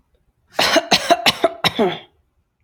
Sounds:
Cough